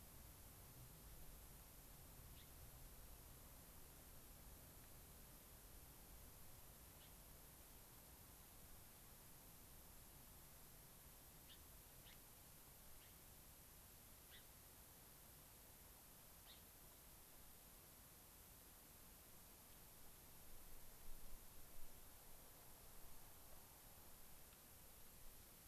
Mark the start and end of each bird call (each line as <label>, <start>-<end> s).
Gray-crowned Rosy-Finch (Leucosticte tephrocotis), 2.3-2.5 s
Gray-crowned Rosy-Finch (Leucosticte tephrocotis), 6.9-7.1 s
Gray-crowned Rosy-Finch (Leucosticte tephrocotis), 11.4-11.6 s
Gray-crowned Rosy-Finch (Leucosticte tephrocotis), 12.0-12.2 s
Gray-crowned Rosy-Finch (Leucosticte tephrocotis), 13.0-13.1 s
Gray-crowned Rosy-Finch (Leucosticte tephrocotis), 14.2-14.4 s
Gray-crowned Rosy-Finch (Leucosticte tephrocotis), 16.4-16.6 s